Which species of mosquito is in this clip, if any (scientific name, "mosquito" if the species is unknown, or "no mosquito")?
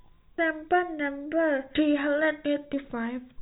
no mosquito